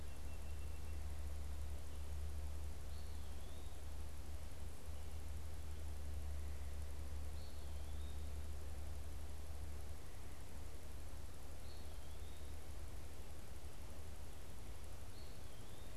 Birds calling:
Eastern Wood-Pewee (Contopus virens), Song Sparrow (Melospiza melodia)

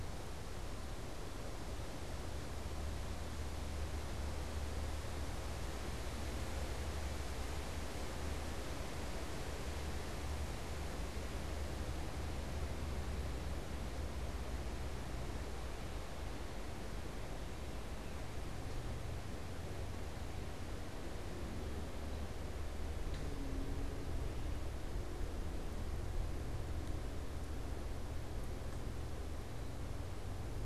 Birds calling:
unidentified bird

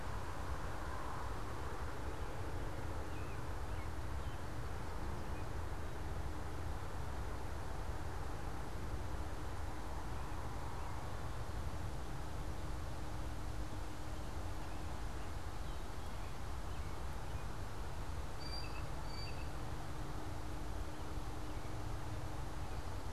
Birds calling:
Blue Jay (Cyanocitta cristata), American Robin (Turdus migratorius)

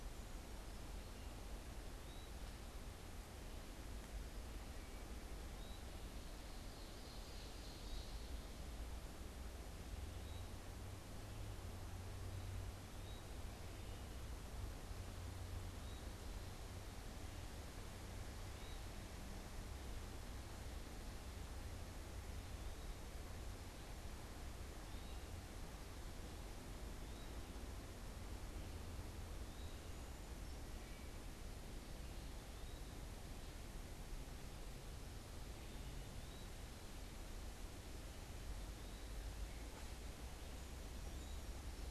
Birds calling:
Ovenbird (Seiurus aurocapilla), Eastern Wood-Pewee (Contopus virens), Wood Thrush (Hylocichla mustelina)

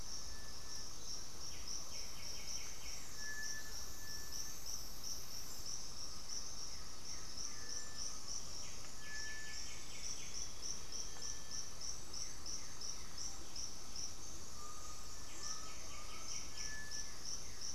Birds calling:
Blue-gray Saltator (Saltator coerulescens), White-winged Becard (Pachyramphus polychopterus), Russet-backed Oropendola (Psarocolius angustifrons), Undulated Tinamou (Crypturellus undulatus), Horned Screamer (Anhima cornuta), Cinereous Tinamou (Crypturellus cinereus)

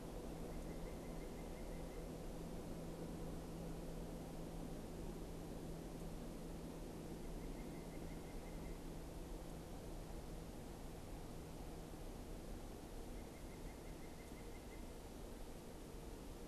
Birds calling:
White-breasted Nuthatch (Sitta carolinensis)

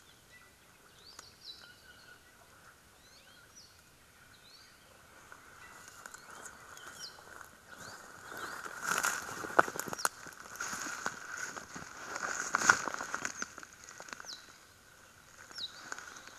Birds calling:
Apapane (Himatione sanguinea)

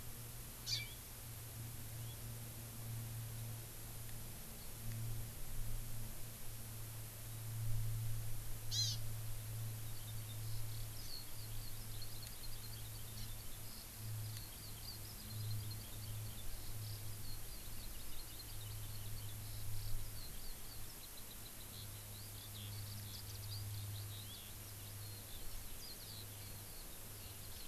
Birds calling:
Eurasian Skylark (Alauda arvensis), Hawaii Amakihi (Chlorodrepanis virens)

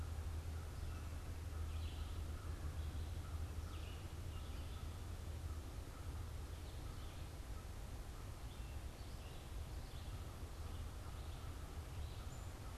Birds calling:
American Crow (Corvus brachyrhynchos), Black-capped Chickadee (Poecile atricapillus), Red-eyed Vireo (Vireo olivaceus)

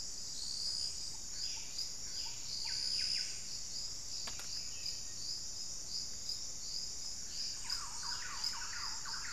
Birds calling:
Buff-breasted Wren (Cantorchilus leucotis), Thrush-like Wren (Campylorhynchus turdinus), unidentified bird

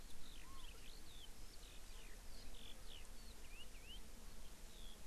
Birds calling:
Eurasian Skylark (Alauda arvensis)

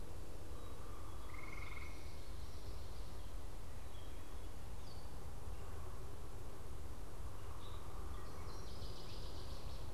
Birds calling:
Gray Catbird (Dumetella carolinensis), Northern Waterthrush (Parkesia noveboracensis)

